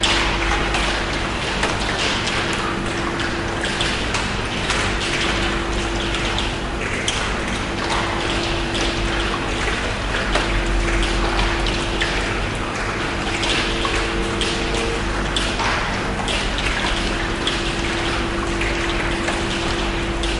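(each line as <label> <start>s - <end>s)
Heavy water drops fall regularly into puddles inside a cave, producing echoing drips. 0.0s - 20.4s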